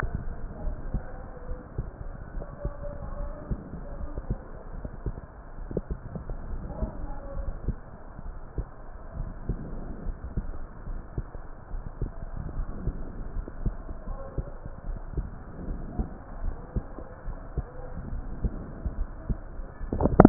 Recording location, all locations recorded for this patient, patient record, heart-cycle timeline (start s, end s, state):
pulmonary valve (PV)
aortic valve (AV)+pulmonary valve (PV)+tricuspid valve (TV)+mitral valve (MV)
#Age: nan
#Sex: Female
#Height: nan
#Weight: nan
#Pregnancy status: True
#Murmur: Absent
#Murmur locations: nan
#Most audible location: nan
#Systolic murmur timing: nan
#Systolic murmur shape: nan
#Systolic murmur grading: nan
#Systolic murmur pitch: nan
#Systolic murmur quality: nan
#Diastolic murmur timing: nan
#Diastolic murmur shape: nan
#Diastolic murmur grading: nan
#Diastolic murmur pitch: nan
#Diastolic murmur quality: nan
#Outcome: Normal
#Campaign: 2015 screening campaign
0.00	0.33	unannotated
0.33	0.64	diastole
0.64	0.80	S1
0.80	0.90	systole
0.90	1.02	S2
1.02	1.50	diastole
1.50	1.60	S1
1.60	1.76	systole
1.76	1.86	S2
1.86	2.36	diastole
2.36	2.48	S1
2.48	2.58	systole
2.58	2.72	S2
2.72	3.18	diastole
3.18	3.34	S1
3.34	3.48	systole
3.48	3.58	S2
3.58	4.00	diastole
4.00	4.14	S1
4.14	4.28	systole
4.28	4.38	S2
4.38	4.82	diastole
4.82	4.92	S1
4.92	5.04	systole
5.04	5.14	S2
5.14	5.68	diastole
5.68	5.82	S1
5.82	5.88	systole
5.88	5.98	S2
5.98	6.50	diastole
6.50	6.64	S1
6.64	6.76	systole
6.76	6.90	S2
6.90	7.38	diastole
7.38	7.56	S1
7.56	7.64	systole
7.64	7.76	S2
7.76	8.26	diastole
8.26	8.36	S1
8.36	8.50	systole
8.50	8.66	S2
8.66	9.18	diastole
9.18	9.34	S1
9.34	9.48	systole
9.48	9.58	S2
9.58	10.00	diastole
10.00	10.16	S1
10.16	10.32	systole
10.32	10.45	S2
10.45	10.88	diastole
10.88	11.02	S1
11.02	11.16	systole
11.16	11.26	S2
11.26	11.72	diastole
11.72	11.84	S1
11.84	12.00	systole
12.00	12.12	S2
12.12	12.54	diastole
12.54	12.70	S1
12.70	12.81	systole
12.81	12.95	S2
12.95	13.34	diastole
13.34	13.48	S1
13.48	13.60	systole
13.60	13.76	S2
13.76	14.07	diastole
14.07	14.24	S1
14.24	14.34	systole
14.34	14.46	S2
14.46	14.84	diastole
14.84	15.04	S1
15.04	15.12	systole
15.12	15.26	S2
15.26	15.68	diastole
15.68	15.82	S1
15.82	15.94	systole
15.94	16.08	S2
16.08	16.40	diastole
16.40	16.54	S1
16.54	16.71	systole
16.71	16.84	S2
16.84	17.26	diastole
17.26	17.40	S1
17.40	17.52	systole
17.52	17.66	S2
17.66	18.12	diastole
18.12	18.28	S1
18.28	18.40	systole
18.40	18.54	S2
18.54	18.97	diastole
18.97	19.14	S1
19.14	19.26	systole
19.26	19.42	S2
19.42	19.80	diastole
19.80	20.29	unannotated